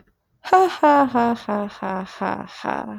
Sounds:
Laughter